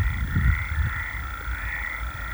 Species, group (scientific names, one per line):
Gryllotalpa vineae
Orthoptera